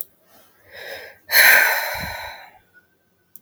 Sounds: Sigh